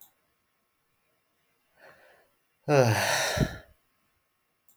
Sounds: Sigh